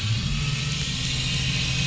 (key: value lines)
label: anthrophony, boat engine
recorder: SoundTrap 500